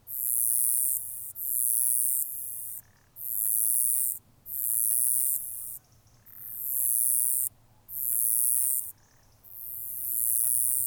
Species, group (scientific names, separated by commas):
Uromenus rugosicollis, Orthoptera